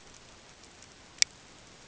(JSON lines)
{"label": "ambient", "recorder": "HydroMoth"}